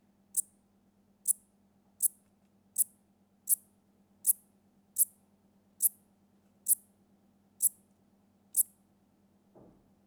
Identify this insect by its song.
Eupholidoptera megastyla, an orthopteran